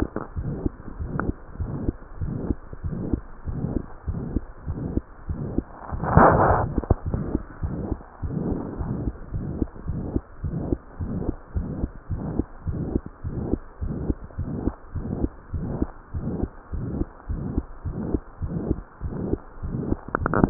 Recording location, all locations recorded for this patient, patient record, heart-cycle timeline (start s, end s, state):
mitral valve (MV)
aortic valve (AV)+pulmonary valve (PV)+tricuspid valve (TV)+mitral valve (MV)
#Age: Child
#Sex: Female
#Height: 112.0 cm
#Weight: 21.8 kg
#Pregnancy status: False
#Murmur: Present
#Murmur locations: aortic valve (AV)+mitral valve (MV)+pulmonary valve (PV)+tricuspid valve (TV)
#Most audible location: tricuspid valve (TV)
#Systolic murmur timing: Holosystolic
#Systolic murmur shape: Plateau
#Systolic murmur grading: III/VI or higher
#Systolic murmur pitch: High
#Systolic murmur quality: Harsh
#Diastolic murmur timing: nan
#Diastolic murmur shape: nan
#Diastolic murmur grading: nan
#Diastolic murmur pitch: nan
#Diastolic murmur quality: nan
#Outcome: Abnormal
#Campaign: 2015 screening campaign
0.10	0.36	diastole
0.36	0.54	S1
0.54	0.62	systole
0.62	0.74	S2
0.74	0.98	diastole
0.98	1.12	S1
1.12	1.20	systole
1.20	1.34	S2
1.34	1.58	diastole
1.58	1.74	S1
1.74	1.84	systole
1.84	1.96	S2
1.96	2.20	diastole
2.20	2.36	S1
2.36	2.46	systole
2.46	2.58	S2
2.58	2.84	diastole
2.84	3.02	S1
3.02	3.10	systole
3.10	3.22	S2
3.22	3.45	diastole
3.45	3.61	S1
3.61	3.68	systole
3.68	3.82	S2
3.82	4.06	diastole
4.06	4.22	S1
4.22	4.34	systole
4.34	4.44	S2
4.44	4.68	diastole
4.68	4.86	S1
4.86	4.94	systole
4.94	5.06	S2
5.06	5.27	diastole
5.27	5.42	S1
5.42	5.56	systole
5.56	5.66	S2
5.66	5.92	diastole
5.92	6.04	S1
6.04	6.14	systole
6.14	6.30	S2
6.30	6.58	diastole
6.58	6.74	S1
6.74	6.82	systole
6.82	6.96	S2
6.96	7.04	diastole
7.04	7.13	S1
7.13	7.32	systole
7.32	7.42	S2
7.42	7.64	diastole
7.64	7.80	S1
7.80	7.90	systole
7.90	7.98	S2
7.98	8.22	diastole
8.22	8.38	S1
8.38	8.46	systole
8.46	8.60	S2
8.60	8.78	diastole
8.78	8.90	S1
8.90	9.04	systole
9.04	9.14	S2
9.14	9.32	diastole
9.32	9.44	S1
9.44	9.58	systole
9.58	9.68	S2
9.68	9.85	diastole
9.85	9.96	S1
9.96	10.14	systole
10.14	10.22	S2
10.22	10.42	diastole
10.42	10.57	S1
10.57	10.70	systole
10.70	10.82	S2
10.82	10.97	diastole
10.97	11.18	S1
11.18	11.26	systole
11.26	11.38	S2
11.38	11.52	diastole
11.52	11.64	S1
11.64	11.80	systole
11.80	11.90	S2
11.90	12.08	diastole
12.08	12.21	S1
12.21	12.36	systole
12.36	12.46	S2
12.46	12.65	diastole
12.65	12.76	S1
12.76	12.92	systole
12.92	13.02	S2
13.02	13.21	diastole
13.21	13.38	S1
13.38	13.48	systole
13.48	13.60	S2
13.60	13.82	diastole
13.82	13.98	S1
13.98	14.02	systole
14.02	14.16	S2
14.16	14.36	diastole
14.36	14.58	S1
14.58	14.64	systole
14.64	14.74	S2
14.74	14.92	diastole
14.92	15.06	S1
15.06	15.17	systole
15.17	15.27	S2
15.27	15.54	diastole
15.54	15.70	S1
15.70	15.80	systole
15.80	15.92	S2
15.92	16.11	diastole
16.11	16.32	S1
16.32	16.38	systole
16.38	16.50	S2
16.50	16.71	diastole
16.71	16.92	S1
16.92	16.98	systole
16.98	17.08	S2
17.08	17.27	diastole
17.27	17.46	S1
17.46	17.52	systole
17.52	17.64	S2
17.64	17.82	diastole
17.82	17.98	S1
17.98	18.08	systole
18.08	18.22	S2
18.22	18.39	diastole
18.39	18.52	S1
18.52	18.69	systole
18.69	18.80	S2
18.80	19.02	diastole
19.02	19.16	S1
19.16	19.30	systole
19.30	19.38	S2
19.38	19.64	diastole
19.64	19.80	S1
19.80	19.86	systole
19.86	19.98	S2
19.98	20.17	diastole